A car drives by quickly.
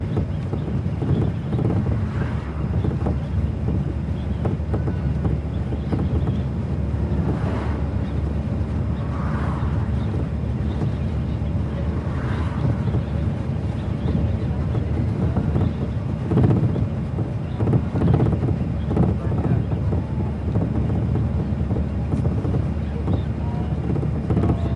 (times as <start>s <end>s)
1.9s 2.9s, 7.0s 8.1s, 8.9s 9.9s, 11.9s 12.8s